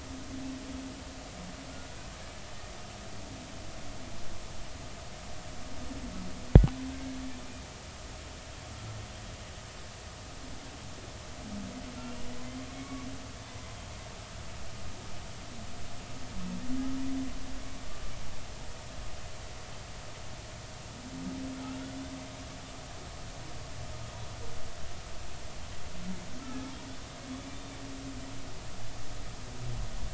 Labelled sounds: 12.7	13.0	humpback whale, 0.99 to 2.3 kHz
17.6	17.9	humpback whale, 2.2 to 2.4 kHz
27.4	27.7	humpback whale, 2.3 to 2.4 kHz

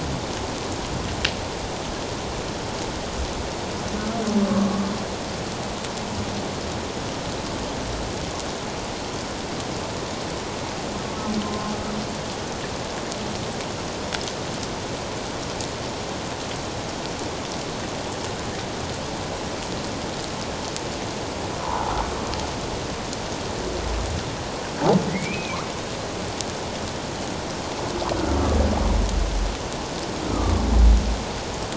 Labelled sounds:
4.5	4.8	humpback whale, 1.1 to 1.2 kHz
11.4	11.7	humpback whale, 0.91 to 1.1 kHz
25.1	25.6	humpback whale, 1.9 to 2.6 kHz
30.3	30.5	humpback whale, 1.1 to 1.4 kHz

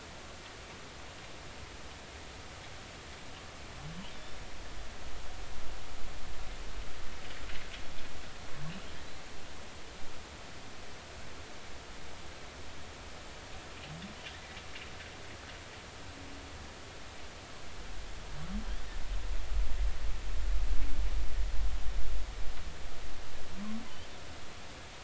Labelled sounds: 4.1	4.4	humpback whale, 3.4 to 3.7 kHz

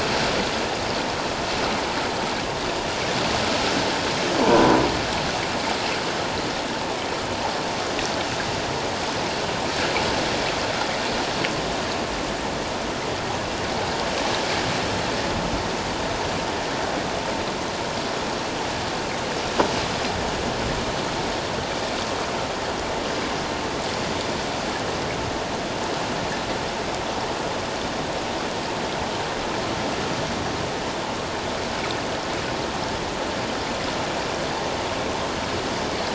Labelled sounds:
4.4	4.8	croaking sound likely from a nearby submerged object, 0.84 to 1.0 kHz

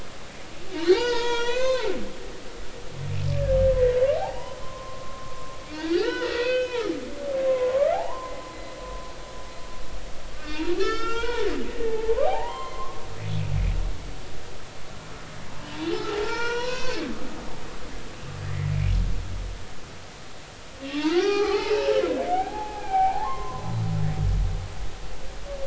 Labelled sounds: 0.8	1.9	humpback whale, 0.80 to 6.4 kHz
4.2	6.9	humpback whale, 0.80 to 5.6 kHz
7.5	8.4	humpback whale, 0.80 to 1.4 kHz
8.8	9.1	humpback whale, 0.99 to 1.1 kHz
10.3	13.0	humpback whale, 0.80 to 6.5 kHz
16.2	17.0	humpback whale, 0.86 to 4.2 kHz
20.8	21.9	humpback whale, 0.80 to 5.8 kHz
22.2	23.8	humpback whale, 0.80 to 4.1 kHz

